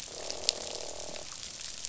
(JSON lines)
{"label": "biophony, croak", "recorder": "SoundTrap 500"}